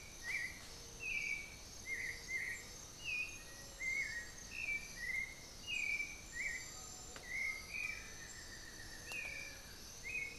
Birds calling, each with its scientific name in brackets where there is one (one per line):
Buff-throated Woodcreeper (Xiphorhynchus guttatus)
Undulated Tinamou (Crypturellus undulatus)
Black-faced Antthrush (Formicarius analis)
Black-billed Thrush (Turdus ignobilis)